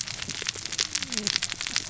{"label": "biophony, cascading saw", "recorder": "SoundTrap 600 or HydroMoth"}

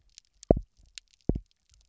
{"label": "biophony, double pulse", "recorder": "SoundTrap 300"}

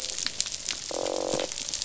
{"label": "biophony, croak", "recorder": "SoundTrap 500"}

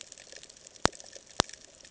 {"label": "ambient", "recorder": "HydroMoth"}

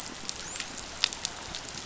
{"label": "biophony, dolphin", "recorder": "SoundTrap 500"}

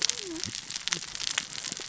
{"label": "biophony, cascading saw", "recorder": "SoundTrap 600 or HydroMoth"}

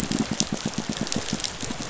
{"label": "biophony, pulse", "recorder": "SoundTrap 500"}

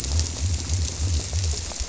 {"label": "biophony", "recorder": "SoundTrap 300"}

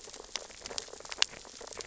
{"label": "biophony, sea urchins (Echinidae)", "recorder": "SoundTrap 600 or HydroMoth"}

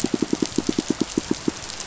{"label": "biophony, pulse", "recorder": "SoundTrap 500"}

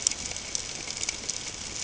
{"label": "ambient", "recorder": "HydroMoth"}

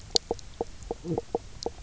{"label": "biophony, knock croak", "recorder": "SoundTrap 300"}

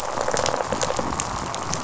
{"label": "biophony, rattle response", "recorder": "SoundTrap 500"}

